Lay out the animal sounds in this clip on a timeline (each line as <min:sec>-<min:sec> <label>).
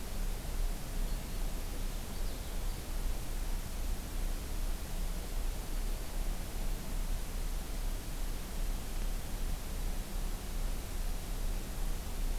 0:01.5-0:02.8 Purple Finch (Haemorhous purpureus)